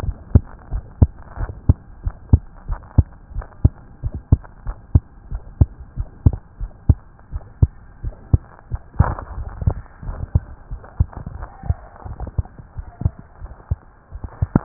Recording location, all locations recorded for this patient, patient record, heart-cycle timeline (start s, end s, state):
tricuspid valve (TV)
aortic valve (AV)+pulmonary valve (PV)+tricuspid valve (TV)+mitral valve (MV)
#Age: Child
#Sex: Female
#Height: 116.0 cm
#Weight: 19.4 kg
#Pregnancy status: False
#Murmur: Present
#Murmur locations: tricuspid valve (TV)
#Most audible location: tricuspid valve (TV)
#Systolic murmur timing: Early-systolic
#Systolic murmur shape: Plateau
#Systolic murmur grading: I/VI
#Systolic murmur pitch: Low
#Systolic murmur quality: Blowing
#Diastolic murmur timing: nan
#Diastolic murmur shape: nan
#Diastolic murmur grading: nan
#Diastolic murmur pitch: nan
#Diastolic murmur quality: nan
#Outcome: Abnormal
#Campaign: 2015 screening campaign
0.00	0.16	S1
0.16	0.30	systole
0.30	0.48	S2
0.48	0.69	diastole
0.69	0.84	S1
0.84	0.96	systole
0.96	1.10	S2
1.10	1.36	diastole
1.36	1.54	S1
1.54	1.66	systole
1.66	1.82	S2
1.82	2.01	diastole
2.01	2.16	S1
2.16	2.30	systole
2.30	2.46	S2
2.46	2.65	diastole
2.65	2.80	S1
2.80	2.94	systole
2.94	3.06	S2
3.06	3.34	diastole
3.34	3.46	S1
3.46	3.60	systole
3.60	3.74	S2
3.74	4.01	diastole
4.01	4.14	S1
4.14	4.28	systole
4.28	4.42	S2
4.42	4.63	diastole
4.63	4.76	S1
4.76	4.90	systole
4.90	5.04	S2
5.04	5.27	diastole
5.27	5.42	S1
5.42	5.56	systole
5.56	5.70	S2
5.70	5.94	diastole
5.94	6.08	S1
6.08	6.22	systole
6.22	6.38	S2
6.38	6.57	diastole
6.57	6.70	S1
6.70	6.84	systole
6.84	6.98	S2
6.98	7.29	diastole
7.29	7.42	S1
7.42	7.58	systole
7.58	7.72	S2
7.72	8.00	diastole
8.00	8.14	S1
8.14	8.30	systole
8.30	8.44	S2
8.44	8.67	diastole
8.67	8.80	S1